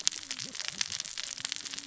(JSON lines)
{"label": "biophony, cascading saw", "recorder": "SoundTrap 600 or HydroMoth"}